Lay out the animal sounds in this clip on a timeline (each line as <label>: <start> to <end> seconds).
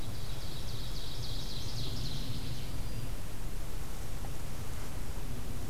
Ovenbird (Seiurus aurocapilla): 0.0 to 2.7 seconds
Black-throated Green Warbler (Setophaga virens): 2.4 to 3.3 seconds